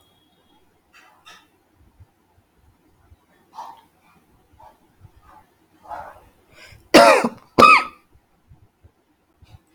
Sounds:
Cough